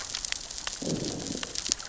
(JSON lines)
{"label": "biophony, growl", "recorder": "SoundTrap 600 or HydroMoth"}